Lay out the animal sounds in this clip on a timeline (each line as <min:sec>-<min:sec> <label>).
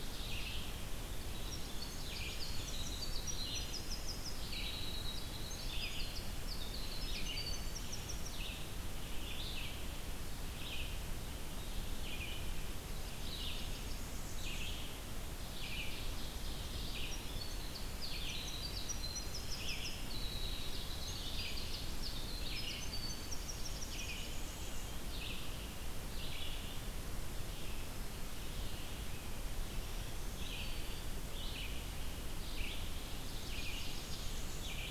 0:00.0-0:00.8 Ovenbird (Seiurus aurocapilla)
0:00.0-0:25.6 Red-eyed Vireo (Vireo olivaceus)
0:01.4-0:08.4 Winter Wren (Troglodytes hiemalis)
0:01.5-0:03.3 Blackburnian Warbler (Setophaga fusca)
0:13.0-0:14.9 Blackburnian Warbler (Setophaga fusca)
0:15.3-0:17.1 Ovenbird (Seiurus aurocapilla)
0:17.1-0:24.5 Winter Wren (Troglodytes hiemalis)
0:23.3-0:25.1 Blackburnian Warbler (Setophaga fusca)
0:26.0-0:34.9 Red-eyed Vireo (Vireo olivaceus)
0:29.7-0:31.1 Black-throated Green Warbler (Setophaga virens)
0:33.2-0:34.8 Blackburnian Warbler (Setophaga fusca)